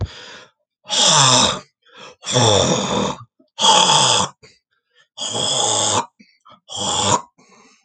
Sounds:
Throat clearing